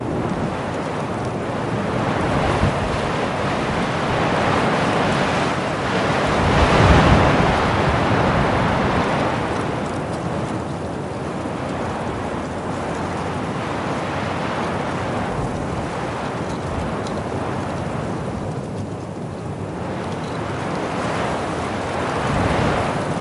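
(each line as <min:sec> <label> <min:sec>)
0:00.0 Branches cracking continuously. 0:23.2
0:00.0 Rustling of dry bushes. 0:23.2
0:00.1 Intermittent gusts of wind blowing. 0:23.2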